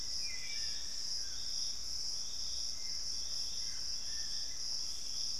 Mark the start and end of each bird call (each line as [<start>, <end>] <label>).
[0.00, 1.09] Black-spotted Bare-eye (Phlegopsis nigromaculata)
[0.00, 4.09] Hauxwell's Thrush (Turdus hauxwelli)
[0.00, 5.40] Dusky-throated Antshrike (Thamnomanes ardesiacus)
[2.59, 4.69] Bluish-fronted Jacamar (Galbula cyanescens)